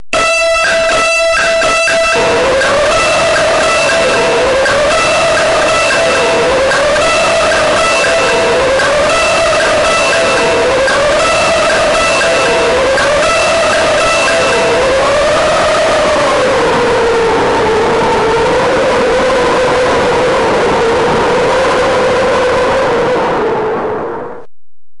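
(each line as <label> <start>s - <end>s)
A siren beeps loudly through a low-quality speaker and then stops abruptly. 0.0s - 15.5s
A loud, intense siren with a clear melody plays from a bad speaker and then abruptly stops. 2.2s - 15.5s
A loud, steady hum from a low-quality speaker gradually fades out. 15.5s - 24.5s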